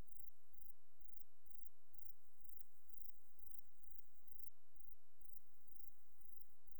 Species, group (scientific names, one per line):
Platycleis grisea
Orthoptera